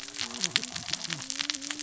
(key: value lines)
label: biophony, cascading saw
recorder: SoundTrap 600 or HydroMoth